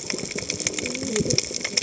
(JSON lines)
{"label": "biophony, cascading saw", "recorder": "HydroMoth"}